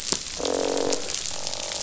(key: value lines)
label: biophony, croak
recorder: SoundTrap 500